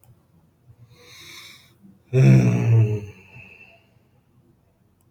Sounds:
Sigh